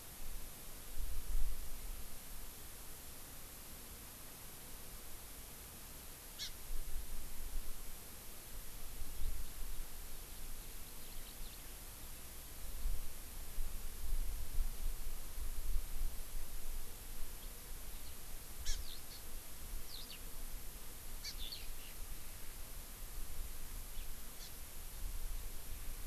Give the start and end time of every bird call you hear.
6.4s-6.5s: Hawaii Amakihi (Chlorodrepanis virens)
9.2s-11.8s: Eurasian Skylark (Alauda arvensis)
18.6s-18.8s: Hawaii Amakihi (Chlorodrepanis virens)
18.8s-19.0s: Eurasian Skylark (Alauda arvensis)
19.9s-20.2s: Eurasian Skylark (Alauda arvensis)
21.2s-21.4s: Hawaii Amakihi (Chlorodrepanis virens)
21.4s-21.7s: Eurasian Skylark (Alauda arvensis)
24.4s-24.5s: Hawaii Amakihi (Chlorodrepanis virens)

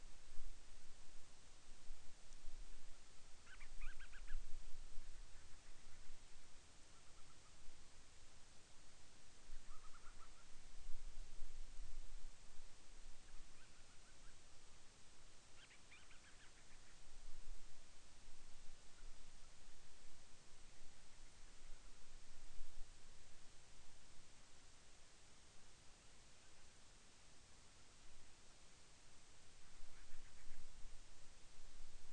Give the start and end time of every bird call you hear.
3.4s-4.5s: Band-rumped Storm-Petrel (Hydrobates castro)
6.7s-7.7s: Band-rumped Storm-Petrel (Hydrobates castro)
9.6s-10.5s: Band-rumped Storm-Petrel (Hydrobates castro)
13.2s-14.4s: Band-rumped Storm-Petrel (Hydrobates castro)
15.5s-16.9s: Band-rumped Storm-Petrel (Hydrobates castro)
29.8s-30.7s: Band-rumped Storm-Petrel (Hydrobates castro)

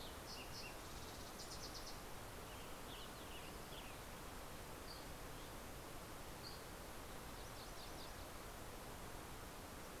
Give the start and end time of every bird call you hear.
0.0s-2.7s: Fox Sparrow (Passerella iliaca)
1.9s-4.7s: Western Tanager (Piranga ludoviciana)
4.8s-6.8s: Dusky Flycatcher (Empidonax oberholseri)
7.2s-8.9s: MacGillivray's Warbler (Geothlypis tolmiei)

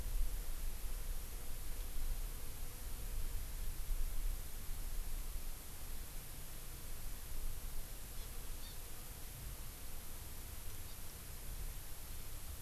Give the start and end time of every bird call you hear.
8.6s-8.8s: Hawaii Amakihi (Chlorodrepanis virens)

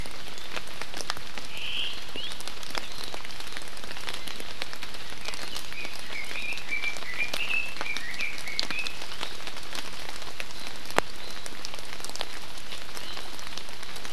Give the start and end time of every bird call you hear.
1.5s-2.0s: Omao (Myadestes obscurus)
2.1s-2.3s: Iiwi (Drepanis coccinea)
5.2s-9.0s: Red-billed Leiothrix (Leiothrix lutea)

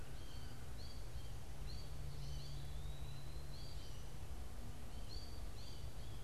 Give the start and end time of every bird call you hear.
0.0s-6.2s: American Goldfinch (Spinus tristis)
0.0s-6.2s: Eastern Wood-Pewee (Contopus virens)

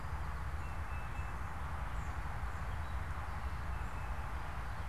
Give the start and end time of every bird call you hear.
0.6s-4.9s: Tufted Titmouse (Baeolophus bicolor)

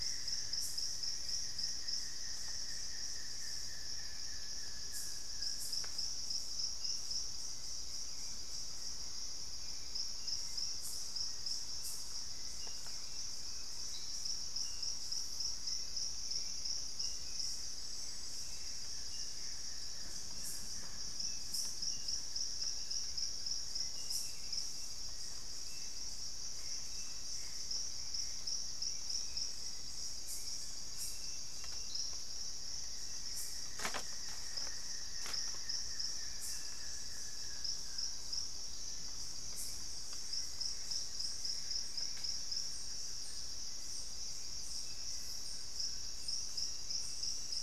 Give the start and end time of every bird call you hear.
0.0s-5.7s: Buff-throated Woodcreeper (Xiphorhynchus guttatus)
0.0s-47.5s: Hauxwell's Thrush (Turdus hauxwelli)
17.6s-19.9s: Gray Antbird (Cercomacra cinerascens)
18.5s-25.2s: Buff-throated Woodcreeper (Xiphorhynchus guttatus)
26.3s-28.7s: Gray Antbird (Cercomacra cinerascens)
30.9s-32.1s: unidentified bird
32.4s-44.0s: Buff-throated Woodcreeper (Xiphorhynchus guttatus)
38.6s-41.2s: Black-faced Antthrush (Formicarius analis)
40.0s-42.8s: Gray Antbird (Cercomacra cinerascens)

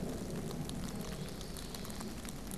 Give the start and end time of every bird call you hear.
0.6s-2.4s: Common Yellowthroat (Geothlypis trichas)

